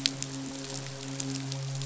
{"label": "biophony, midshipman", "recorder": "SoundTrap 500"}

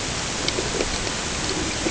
{"label": "ambient", "recorder": "HydroMoth"}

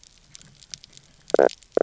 {"label": "biophony, knock croak", "recorder": "SoundTrap 300"}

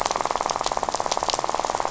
{"label": "biophony, rattle", "recorder": "SoundTrap 500"}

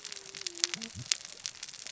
{"label": "biophony, cascading saw", "recorder": "SoundTrap 600 or HydroMoth"}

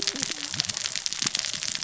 {"label": "biophony, cascading saw", "recorder": "SoundTrap 600 or HydroMoth"}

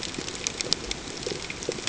{"label": "ambient", "recorder": "HydroMoth"}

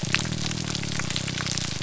{"label": "biophony, grouper groan", "recorder": "SoundTrap 300"}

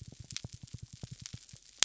{"label": "biophony", "recorder": "SoundTrap 300"}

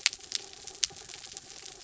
{"label": "anthrophony, mechanical", "recorder": "SoundTrap 300"}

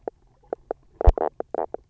{"label": "biophony, knock croak", "recorder": "SoundTrap 300"}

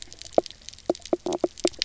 {"label": "biophony, knock croak", "recorder": "SoundTrap 300"}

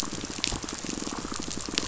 {"label": "biophony, pulse", "recorder": "SoundTrap 500"}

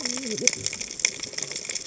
{"label": "biophony, cascading saw", "recorder": "HydroMoth"}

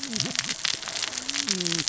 {"label": "biophony, cascading saw", "recorder": "SoundTrap 600 or HydroMoth"}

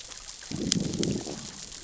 {"label": "biophony, growl", "recorder": "SoundTrap 600 or HydroMoth"}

